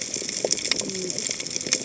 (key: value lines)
label: biophony, cascading saw
recorder: HydroMoth